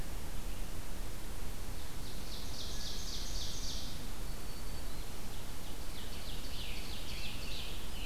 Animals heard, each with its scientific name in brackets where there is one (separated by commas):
Scarlet Tanager (Piranga olivacea), Black-throated Green Warbler (Setophaga virens), Ovenbird (Seiurus aurocapilla)